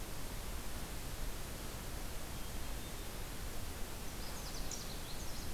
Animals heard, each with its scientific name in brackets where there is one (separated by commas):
Canada Warbler (Cardellina canadensis)